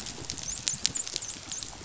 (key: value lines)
label: biophony, dolphin
recorder: SoundTrap 500